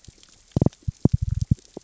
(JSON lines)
{"label": "biophony, knock", "recorder": "SoundTrap 600 or HydroMoth"}